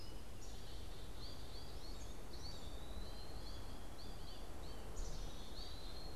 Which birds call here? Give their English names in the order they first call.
American Goldfinch, Black-capped Chickadee, Eastern Wood-Pewee